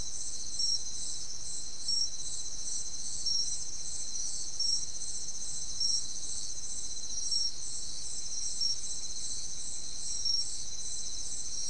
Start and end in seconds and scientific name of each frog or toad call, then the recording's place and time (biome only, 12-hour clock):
none
Atlantic Forest, 2:15am